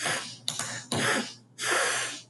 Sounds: Sneeze